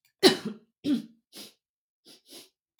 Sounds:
Sniff